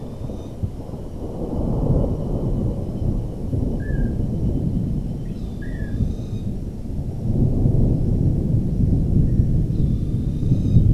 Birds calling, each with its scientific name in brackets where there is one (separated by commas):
Long-tailed Manakin (Chiroxiphia linearis), Boat-billed Flycatcher (Megarynchus pitangua)